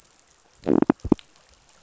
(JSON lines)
{"label": "biophony", "recorder": "SoundTrap 500"}